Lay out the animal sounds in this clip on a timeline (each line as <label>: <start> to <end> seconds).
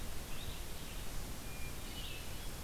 Red-eyed Vireo (Vireo olivaceus): 0.0 to 2.6 seconds